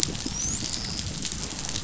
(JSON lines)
{"label": "biophony, dolphin", "recorder": "SoundTrap 500"}